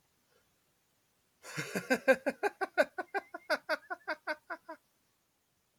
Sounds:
Laughter